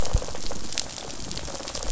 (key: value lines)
label: biophony, rattle response
recorder: SoundTrap 500